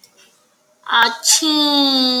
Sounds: Sneeze